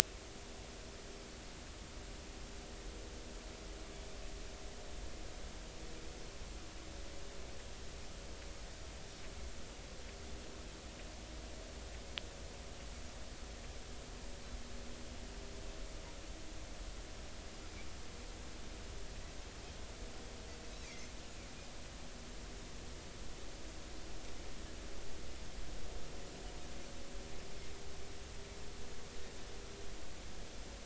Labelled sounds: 20.8	21.1	Pacific white-sided dolphin, 1.9 to 2.7 kHz

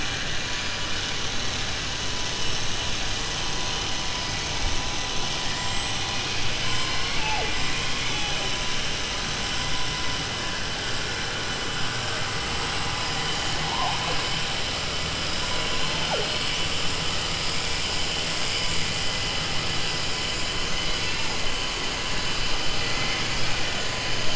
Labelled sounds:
5.5	6.1	killer whale, southern resident, 7.1 to 8.0 kHz

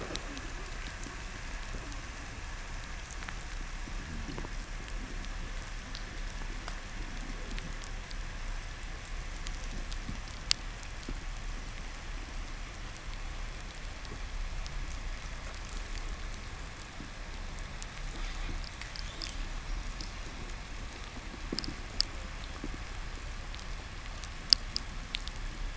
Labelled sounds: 18.7	19.8	killer whale, 1.9 to 4.0 kHz

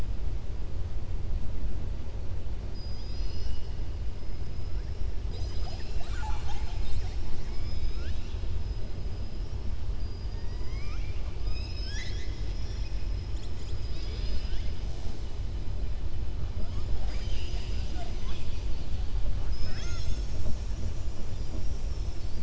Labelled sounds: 10.3	11.4	killer whale, southern resident, 0.94 to 3.3 kHz

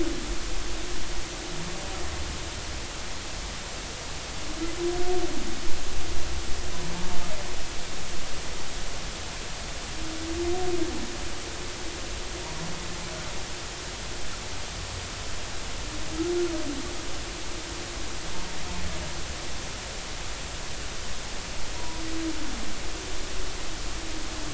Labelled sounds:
21.8	22.0	humpback whale, 0.93 to 1.0 kHz

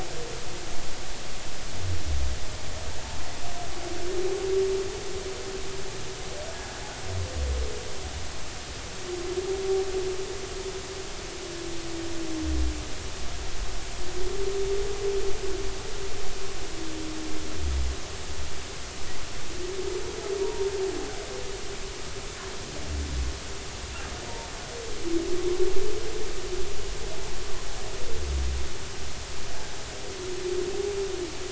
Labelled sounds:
20.4	20.7	humpback whale, 0.86 to 0.99 kHz

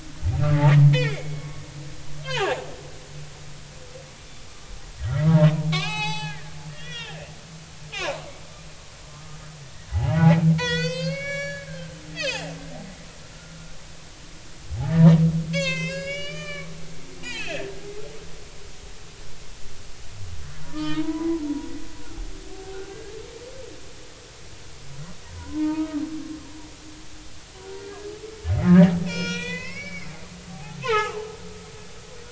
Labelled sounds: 0.9	1.6	humpback whale, 1.1 to 3.6 kHz
2.2	2.5	humpback whale, 0.80 to 3.3 kHz
5.0	5.4	humpback whale, 1.2 to 2.1 kHz
5.7	7.3	humpback whale, 0.80 to 7.8 kHz
7.9	8.2	humpback whale, 2.9 to 3.8 kHz
9.1	9.4	humpback whale, 0.99 to 1.5 kHz
9.9	10.3	humpback whale, 0.80 to 1.0 kHz
10.6	12.5	humpback whale, 0.80 to 7.9 kHz
13.3	13.7	humpback whale, 1.3 to 1.5 kHz
15.5	17.6	humpback whale, 0.99 to 6.9 kHz
20.7	21.4	humpback whale, 0.86 to 4.4 kHz
22.9	23.1	humpback whale, 1.6 to 1.7 kHz
25.4	26.0	humpback whale, 0.86 to 1.5 kHz
27.8	28.1	humpback whale, 1.6 to 1.7 kHz
29.0	30.1	humpback whale, 0.93 to 5.9 kHz
30.5	31.2	humpback whale, 0.80 to 2.7 kHz

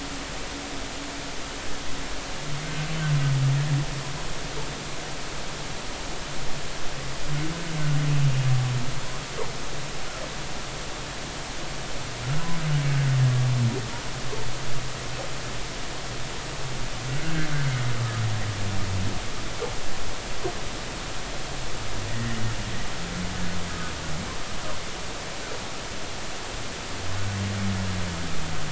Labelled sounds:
2.6	2.9	humpback whale, 1.5 to 1.6 kHz
17.1	17.5	humpback whale, 1.4 to 1.8 kHz
22.1	22.4	humpback whale, 1.8 to 2.0 kHz

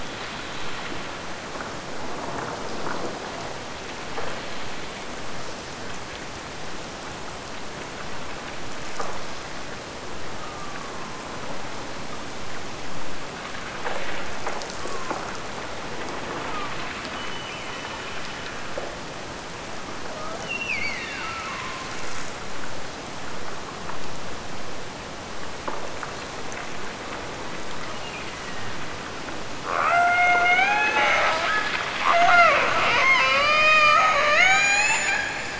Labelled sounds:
10.3	11.7	killer whale, Bigg's (transient), Gulf of Alaska transient, 0.70 to 1.3 kHz
14.7	15.3	killer whale, Bigg's (transient), Gulf of Alaska transient, 0.88 to 2.7 kHz
16.4	18.7	killer whale, Bigg's (transient), Gulf of Alaska transient, 0.52 to 3.1 kHz
20.4	22.2	killer whale, Bigg's (transient), Gulf of Alaska transient, 0.90 to 4.9 kHz
27.8	28.8	killer whale, Bigg's (transient), Gulf of Alaska transient, 1.7 to 2.9 kHz
29.7	35.5	killer whale, Bigg's (transient), Gulf of Alaska transient, 0.30 to 7.2 kHz

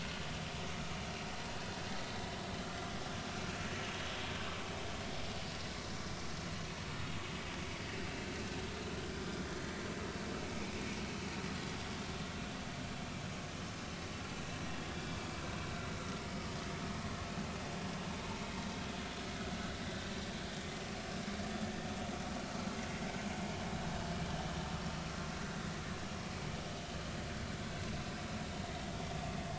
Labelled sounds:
2.6	2.9	vessel noise, 1.3 to 1.4 kHz
11.5	11.8	vessel noise, 3.3 to 3.5 kHz

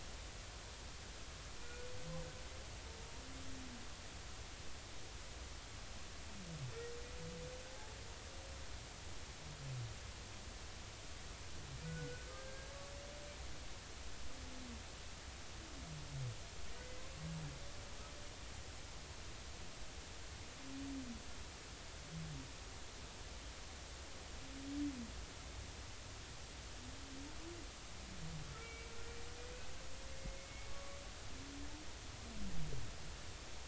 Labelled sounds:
1.6	1.9	humpback whale, 1.4 to 2.5 kHz
11.8	12.7	humpback whale, 1.4 to 1.7 kHz
28.6	28.9	humpback whale, 2.2 to 2.3 kHz
30.4	31.0	humpback whale, 1.1 to 2.2 kHz

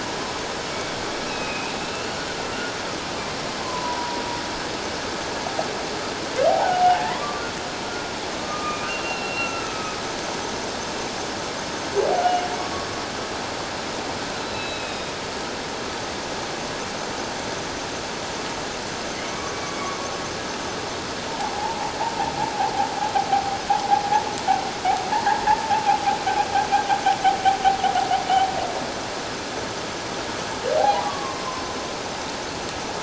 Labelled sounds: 1.2	2.1	humpback whale, 2.4 to 2.8 kHz
3.6	4.2	humpback whale, 0.91 to 1.1 kHz
6.5	7.4	humpback whale, 0.78 to 1.2 kHz
8.4	9.8	humpback whale, 1.2 to 2.8 kHz
12.6	12.9	humpback whale, 1.1 to 1.2 kHz
14.4	15.1	humpback whale, 2.4 to 4.1 kHz
19.2	19.5	humpback whale, 2.0 to 2.3 kHz
21.3	21.9	humpback whale, 0.78 to 1.0 kHz
25.1	25.4	humpback whale, 1.5 to 1.9 kHz
30.8	31.6	humpback whale, 0.78 to 1.2 kHz

